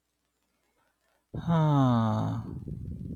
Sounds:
Sigh